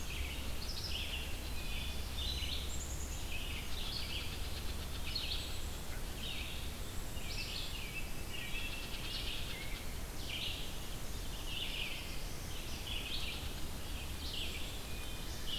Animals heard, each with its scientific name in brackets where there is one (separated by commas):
Black-capped Chickadee (Poecile atricapillus), Black-throated Blue Warbler (Setophaga caerulescens), Red-eyed Vireo (Vireo olivaceus), Wood Thrush (Hylocichla mustelina), unknown mammal